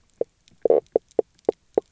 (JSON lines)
{"label": "biophony, knock croak", "recorder": "SoundTrap 300"}